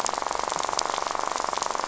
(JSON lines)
{"label": "biophony, rattle", "recorder": "SoundTrap 500"}